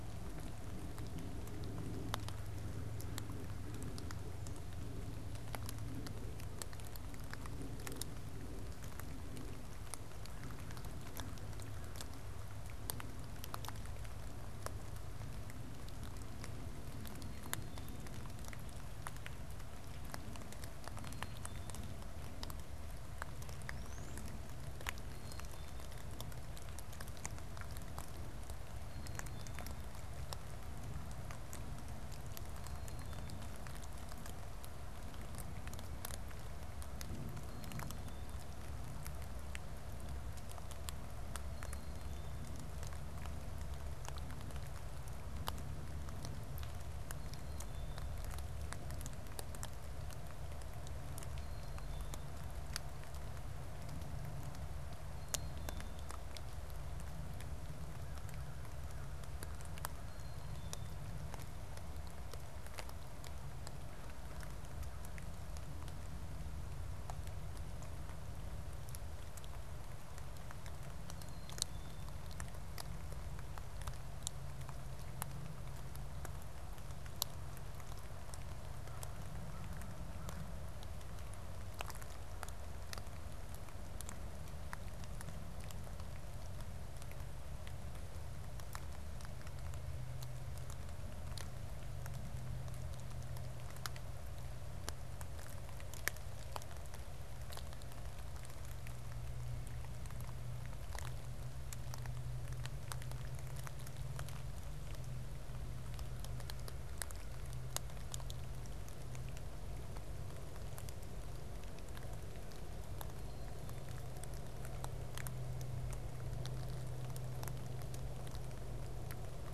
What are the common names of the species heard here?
Black-capped Chickadee, Brown-headed Cowbird